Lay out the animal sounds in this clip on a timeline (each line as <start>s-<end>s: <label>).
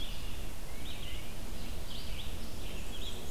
0.0s-3.3s: Red-eyed Vireo (Vireo olivaceus)
0.6s-1.3s: Tufted Titmouse (Baeolophus bicolor)
2.5s-3.3s: Black-and-white Warbler (Mniotilta varia)